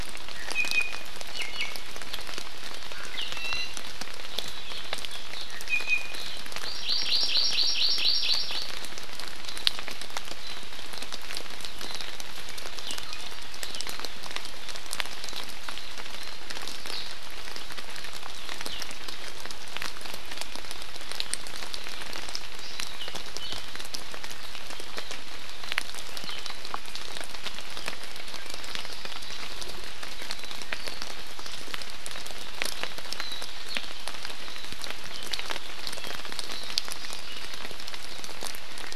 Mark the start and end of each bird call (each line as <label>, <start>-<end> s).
Iiwi (Drepanis coccinea), 0.3-1.8 s
Iiwi (Drepanis coccinea), 3.3-3.7 s
Iiwi (Drepanis coccinea), 5.5-6.3 s
Hawaii Amakihi (Chlorodrepanis virens), 6.6-8.7 s
Warbling White-eye (Zosterops japonicus), 9.5-9.6 s
Warbling White-eye (Zosterops japonicus), 10.4-10.5 s
Warbling White-eye (Zosterops japonicus), 11.8-12.1 s
Iiwi (Drepanis coccinea), 13.0-13.6 s
Warbling White-eye (Zosterops japonicus), 15.2-16.4 s
Warbling White-eye (Zosterops japonicus), 18.6-18.8 s
Hawaii Creeper (Loxops mana), 28.6-29.7 s
Warbling White-eye (Zosterops japonicus), 30.3-30.5 s
Warbling White-eye (Zosterops japonicus), 33.2-33.4 s